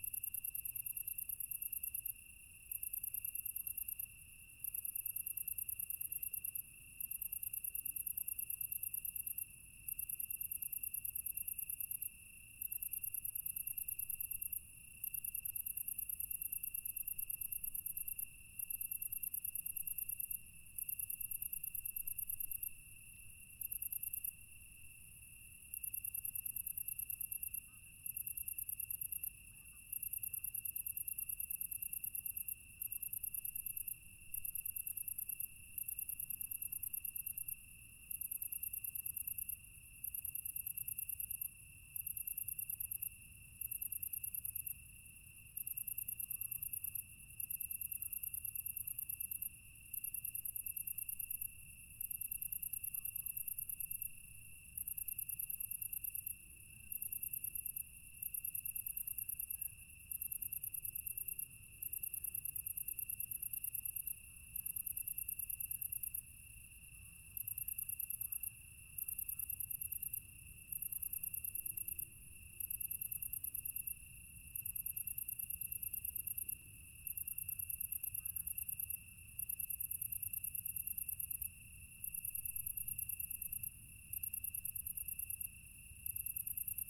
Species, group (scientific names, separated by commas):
Oecanthus pellucens, Orthoptera